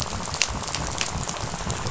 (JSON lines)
{"label": "biophony, rattle", "recorder": "SoundTrap 500"}